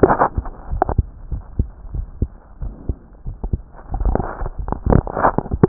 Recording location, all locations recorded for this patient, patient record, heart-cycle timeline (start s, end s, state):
other location
aortic valve (AV)+pulmonary valve (PV)+mitral valve (MV)+other location+other location
#Age: Child
#Sex: Male
#Height: 129.0 cm
#Weight: 24.8 kg
#Pregnancy status: False
#Murmur: Absent
#Murmur locations: nan
#Most audible location: nan
#Systolic murmur timing: nan
#Systolic murmur shape: nan
#Systolic murmur grading: nan
#Systolic murmur pitch: nan
#Systolic murmur quality: nan
#Diastolic murmur timing: nan
#Diastolic murmur shape: nan
#Diastolic murmur grading: nan
#Diastolic murmur pitch: nan
#Diastolic murmur quality: nan
#Outcome: Abnormal
#Campaign: 2014 screening campaign
0.00	0.70	unannotated
0.70	0.82	S1
0.82	0.96	systole
0.96	1.06	S2
1.06	1.30	diastole
1.30	1.42	S1
1.42	1.58	systole
1.58	1.68	S2
1.68	1.94	diastole
1.94	2.06	S1
2.06	2.20	systole
2.20	2.30	S2
2.30	2.62	diastole
2.62	2.72	S1
2.72	2.88	systole
2.88	2.96	S2
2.96	3.26	diastole
3.26	3.36	S1
3.36	3.52	systole
3.52	3.58	S2
3.58	3.88	diastole
3.88	5.68	unannotated